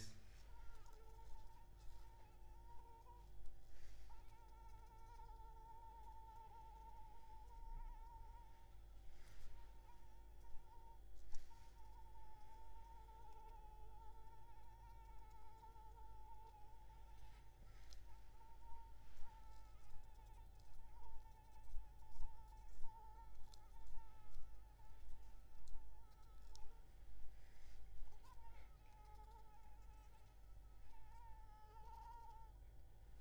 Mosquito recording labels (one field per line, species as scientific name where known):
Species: Anopheles arabiensis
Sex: female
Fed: unfed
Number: one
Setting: cup